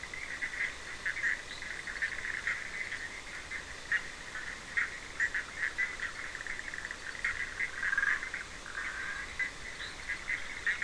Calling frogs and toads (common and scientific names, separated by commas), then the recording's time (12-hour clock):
Bischoff's tree frog (Boana bischoffi), fine-lined tree frog (Boana leptolineata), Burmeister's tree frog (Boana prasina)
9:30pm